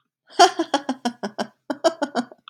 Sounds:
Laughter